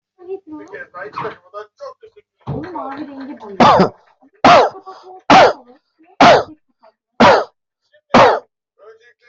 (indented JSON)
{
  "expert_labels": [
    {
      "quality": "ok",
      "cough_type": "dry",
      "dyspnea": false,
      "wheezing": false,
      "stridor": false,
      "choking": false,
      "congestion": false,
      "nothing": true,
      "diagnosis": "COVID-19",
      "severity": "mild"
    }
  ],
  "age": 36,
  "gender": "male",
  "respiratory_condition": false,
  "fever_muscle_pain": false,
  "status": "healthy"
}